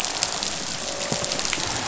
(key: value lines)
label: biophony, croak
recorder: SoundTrap 500